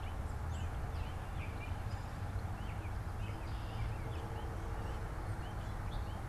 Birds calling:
Gray Catbird (Dumetella carolinensis)

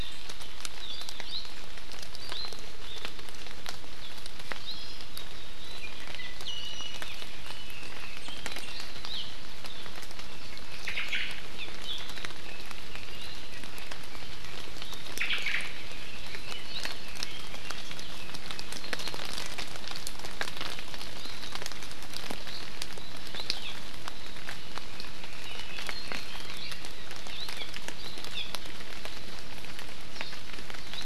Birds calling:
Hawaii Amakihi (Chlorodrepanis virens), Iiwi (Drepanis coccinea), Hawaii Akepa (Loxops coccineus), Omao (Myadestes obscurus), Red-billed Leiothrix (Leiothrix lutea)

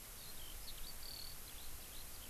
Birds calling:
Eurasian Skylark (Alauda arvensis)

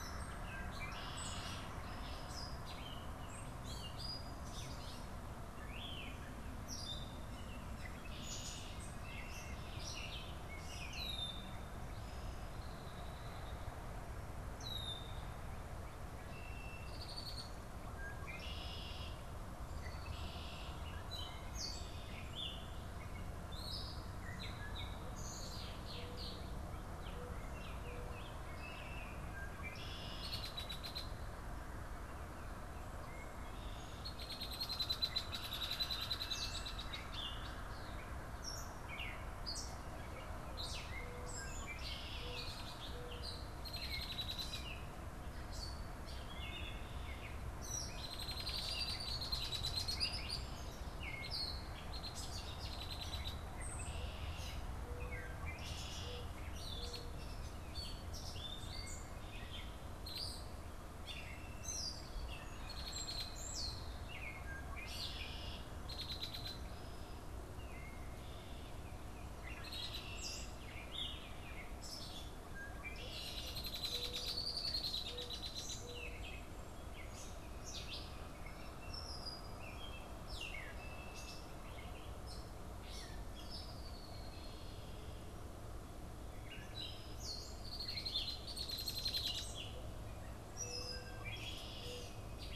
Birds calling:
Red-winged Blackbird (Agelaius phoeniceus), Gray Catbird (Dumetella carolinensis), Mourning Dove (Zenaida macroura), Baltimore Oriole (Icterus galbula)

